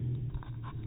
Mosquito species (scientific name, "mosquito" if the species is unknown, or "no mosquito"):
no mosquito